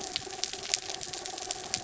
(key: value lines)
label: anthrophony, mechanical
recorder: SoundTrap 300